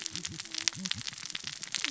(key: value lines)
label: biophony, cascading saw
recorder: SoundTrap 600 or HydroMoth